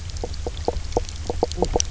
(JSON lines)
{"label": "biophony, knock croak", "recorder": "SoundTrap 300"}